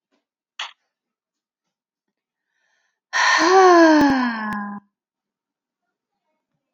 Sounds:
Sigh